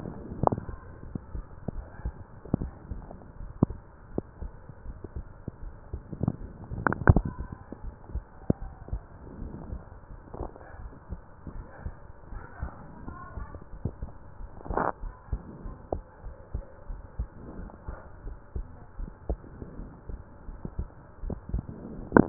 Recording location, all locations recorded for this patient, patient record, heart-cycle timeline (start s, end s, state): pulmonary valve (PV)
aortic valve (AV)+pulmonary valve (PV)
#Age: Adolescent
#Sex: Female
#Height: 160.0 cm
#Weight: 62.1 kg
#Pregnancy status: False
#Murmur: Absent
#Murmur locations: nan
#Most audible location: nan
#Systolic murmur timing: nan
#Systolic murmur shape: nan
#Systolic murmur grading: nan
#Systolic murmur pitch: nan
#Systolic murmur quality: nan
#Diastolic murmur timing: nan
#Diastolic murmur shape: nan
#Diastolic murmur grading: nan
#Diastolic murmur pitch: nan
#Diastolic murmur quality: nan
#Outcome: Normal
#Campaign: 2015 screening campaign
0.00	8.90	unannotated
8.90	9.04	S2
9.04	9.38	diastole
9.38	9.52	S1
9.52	9.70	systole
9.70	9.82	S2
9.82	10.12	diastole
10.12	10.20	S1
10.20	10.38	systole
10.38	10.50	S2
10.50	10.80	diastole
10.80	10.92	S1
10.92	11.12	systole
11.12	11.22	S2
11.22	11.52	diastole
11.52	11.66	S1
11.66	11.84	systole
11.84	11.96	S2
11.96	12.32	diastole
12.32	12.44	S1
12.44	12.60	systole
12.60	12.72	S2
12.72	13.06	diastole
13.06	13.18	S1
13.18	13.38	systole
13.38	13.48	S2
13.48	13.72	diastole
13.72	13.94	S1
13.94	14.02	systole
14.02	14.12	S2
14.12	14.37	diastole
14.37	14.50	S1
14.50	14.68	systole
14.68	14.88	S2
14.88	15.02	diastole
15.02	15.13	S1
15.13	15.31	systole
15.31	15.41	S2
15.41	15.64	diastole
15.64	15.74	S1
15.74	15.89	systole
15.89	16.04	S2
16.04	16.22	diastole
16.22	16.34	S1
16.34	16.50	systole
16.50	16.62	S2
16.62	16.86	diastole
16.86	17.00	S1
17.00	17.16	systole
17.16	17.30	S2
17.30	17.55	diastole
17.55	17.68	S1
17.68	17.84	systole
17.84	17.98	S2
17.98	18.24	diastole
18.24	18.38	S1
18.38	18.53	systole
18.53	18.68	S2
18.68	18.96	diastole
18.96	19.12	S1
19.12	19.28	systole
19.28	19.42	S2
19.42	19.75	diastole
19.75	19.92	S1
19.92	20.05	systole
20.05	20.20	S2
20.20	20.45	diastole
20.45	20.60	S1
20.60	20.76	systole
20.76	20.90	S2
20.90	21.03	diastole
21.03	22.29	unannotated